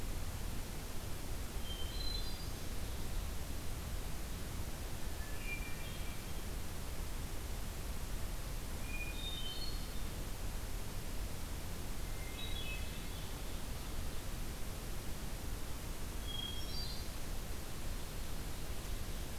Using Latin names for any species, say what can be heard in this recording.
Catharus guttatus, Seiurus aurocapilla